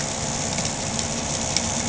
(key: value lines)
label: anthrophony, boat engine
recorder: HydroMoth